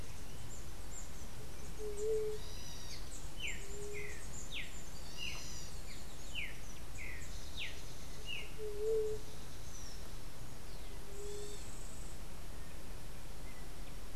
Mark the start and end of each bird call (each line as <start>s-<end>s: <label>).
1.3s-4.2s: White-tipped Dove (Leptotila verreauxi)
2.8s-8.7s: Streaked Saltator (Saltator striatipectus)
8.1s-11.7s: White-tipped Dove (Leptotila verreauxi)